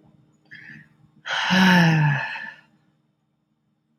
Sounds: Sigh